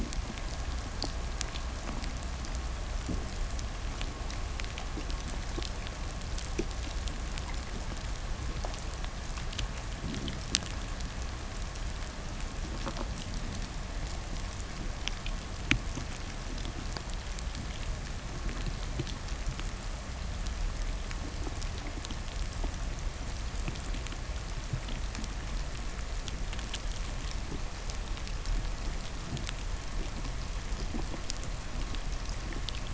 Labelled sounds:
4.3	10.8	undetermined biological sound, 1.7 to 8.0 kHz
9.7	10.7	fish, 0 to 0.64 kHz

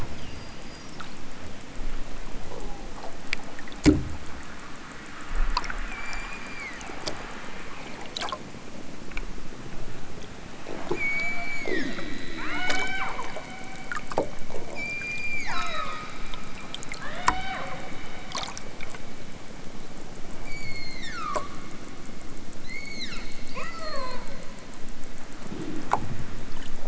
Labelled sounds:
5.8	7.0	killer whale, southern Alaska resident, 0.73 to 7.4 kHz
10.9	13.2	killer whale, southern Alaska resident, 0.41 to 7.5 kHz
14.7	16.1	killer whale, southern Alaska resident, 0.28 to 7.4 kHz
17.0	17.7	killer whale, southern Alaska resident, 0.50 to 5.7 kHz
20.4	21.5	killer whale, southern Alaska resident, 0.73 to 7.9 kHz
22.6	24.3	killer whale, southern Alaska resident, 0.18 to 8.0 kHz

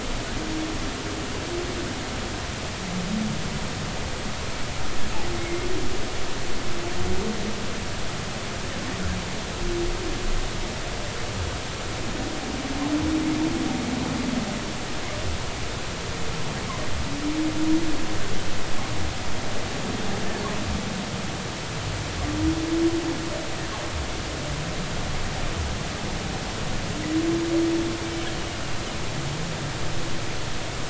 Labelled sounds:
5.3	5.7	humpback whale, 2.0 to 2.2 kHz

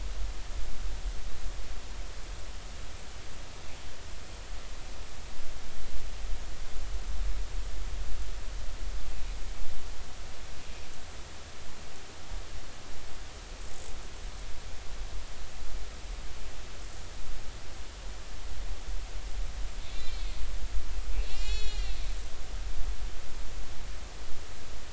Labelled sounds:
19.8	20.4	killer whale, northern resident, A clan, call N03, 2.0 to 4.4 kHz
21.2	22.0	killer whale, northern resident, A clan, call N03, 1.9 to 7.3 kHz

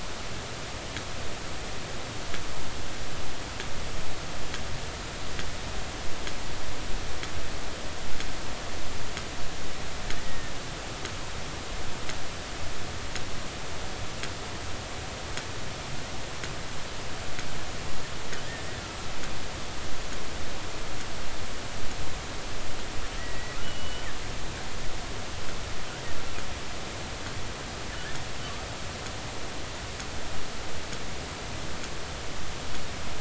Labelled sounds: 10.2	10.6	killer whale, 1.7 to 2.0 kHz
23.2	24.1	killer whale, 1.8 to 3.1 kHz

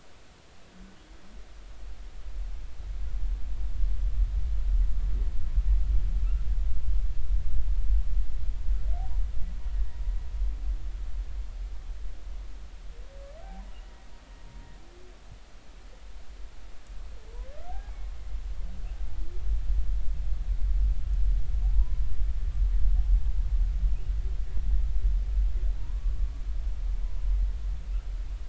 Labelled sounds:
13.7	14.1	humpback whale, 1.8 to 3.0 kHz
17.7	17.9	humpback whale, 0.80 to 0.90 kHz
21.6	22.0	humpback whale, 0.80 to 1.1 kHz
25.8	26.2	humpback whale, 0.86 to 1.2 kHz

